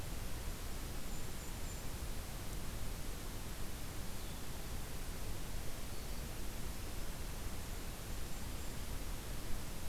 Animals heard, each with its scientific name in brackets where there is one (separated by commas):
Golden-crowned Kinglet (Regulus satrapa)